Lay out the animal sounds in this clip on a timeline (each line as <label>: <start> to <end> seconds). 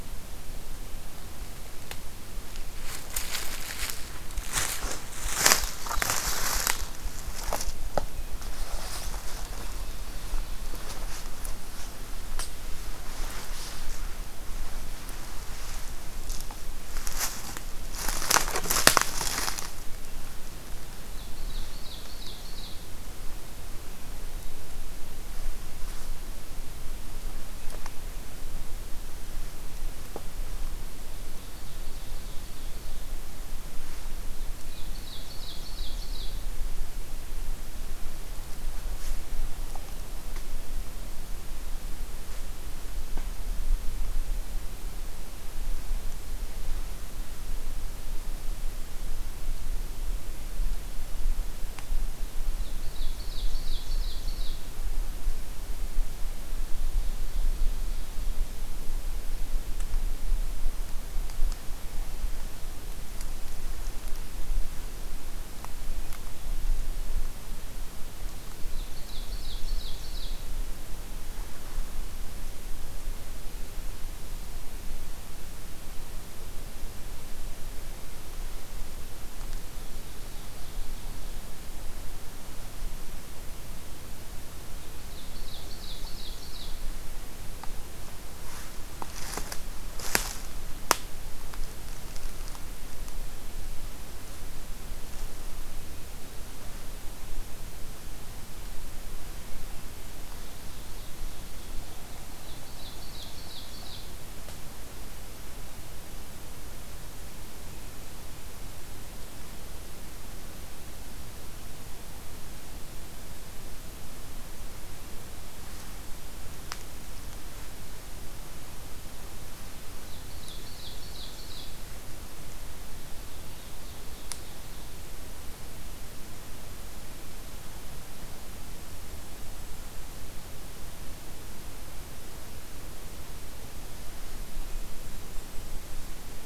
Ovenbird (Seiurus aurocapilla): 20.9 to 22.9 seconds
Ovenbird (Seiurus aurocapilla): 31.3 to 33.1 seconds
Ovenbird (Seiurus aurocapilla): 34.6 to 36.6 seconds
Ovenbird (Seiurus aurocapilla): 52.6 to 54.6 seconds
Ovenbird (Seiurus aurocapilla): 68.6 to 70.4 seconds
Ovenbird (Seiurus aurocapilla): 79.5 to 81.1 seconds
Ovenbird (Seiurus aurocapilla): 84.9 to 86.8 seconds
Ovenbird (Seiurus aurocapilla): 100.2 to 104.2 seconds
Ovenbird (Seiurus aurocapilla): 119.8 to 121.8 seconds
Golden-crowned Kinglet (Regulus satrapa): 120.2 to 122.3 seconds
Ovenbird (Seiurus aurocapilla): 122.8 to 124.9 seconds
Golden-crowned Kinglet (Regulus satrapa): 134.5 to 136.5 seconds